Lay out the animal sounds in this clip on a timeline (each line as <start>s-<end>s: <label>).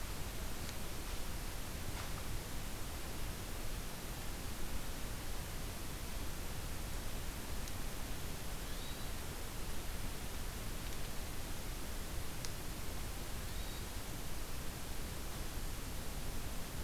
8.4s-9.3s: Hermit Thrush (Catharus guttatus)
13.2s-14.2s: Hermit Thrush (Catharus guttatus)